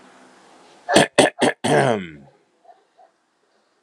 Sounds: Throat clearing